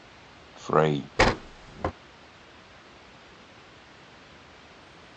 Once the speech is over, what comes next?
wooden drawer closing